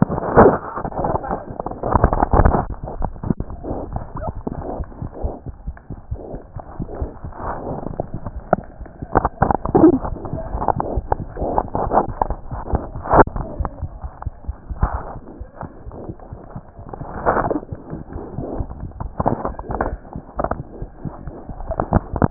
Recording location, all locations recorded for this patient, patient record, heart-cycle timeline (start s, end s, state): aortic valve (AV)
aortic valve (AV)+mitral valve (MV)
#Age: Child
#Sex: Female
#Height: 68.0 cm
#Weight: 7.595 kg
#Pregnancy status: False
#Murmur: Unknown
#Murmur locations: nan
#Most audible location: nan
#Systolic murmur timing: nan
#Systolic murmur shape: nan
#Systolic murmur grading: nan
#Systolic murmur pitch: nan
#Systolic murmur quality: nan
#Diastolic murmur timing: nan
#Diastolic murmur shape: nan
#Diastolic murmur grading: nan
#Diastolic murmur pitch: nan
#Diastolic murmur quality: nan
#Outcome: Abnormal
#Campaign: 2015 screening campaign
0.00	5.44	unannotated
5.44	5.52	S1
5.52	5.65	systole
5.65	5.73	S2
5.73	5.89	diastole
5.89	5.96	S1
5.96	6.10	systole
6.10	6.16	S2
6.16	6.32	diastole
6.32	6.38	S1
6.38	6.54	systole
6.54	6.61	S2
6.61	6.78	diastole
6.78	6.85	S1
6.85	7.00	systole
7.00	7.07	S2
7.07	7.22	diastole
7.22	7.30	S1
7.30	13.80	unannotated
13.80	13.88	S1
13.88	14.00	systole
14.00	14.09	S2
14.09	14.23	diastole
14.23	14.30	S1
14.30	14.45	systole
14.45	14.54	S2
14.54	14.69	diastole
14.69	22.30	unannotated